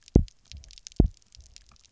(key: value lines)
label: biophony, double pulse
recorder: SoundTrap 300